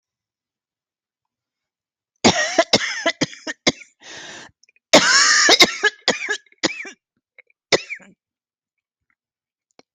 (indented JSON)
{
  "expert_labels": [
    {
      "quality": "good",
      "cough_type": "dry",
      "dyspnea": false,
      "wheezing": false,
      "stridor": false,
      "choking": true,
      "congestion": false,
      "nothing": false,
      "diagnosis": "COVID-19",
      "severity": "mild"
    },
    {
      "quality": "good",
      "cough_type": "dry",
      "dyspnea": true,
      "wheezing": false,
      "stridor": false,
      "choking": false,
      "congestion": false,
      "nothing": false,
      "diagnosis": "COVID-19",
      "severity": "mild"
    },
    {
      "quality": "good",
      "cough_type": "wet",
      "dyspnea": false,
      "wheezing": false,
      "stridor": false,
      "choking": false,
      "congestion": false,
      "nothing": false,
      "diagnosis": "lower respiratory tract infection",
      "severity": "severe"
    },
    {
      "quality": "good",
      "cough_type": "dry",
      "dyspnea": false,
      "wheezing": false,
      "stridor": false,
      "choking": false,
      "congestion": false,
      "nothing": true,
      "diagnosis": "upper respiratory tract infection",
      "severity": "mild"
    }
  ]
}